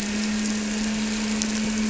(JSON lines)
{"label": "anthrophony, boat engine", "recorder": "SoundTrap 300"}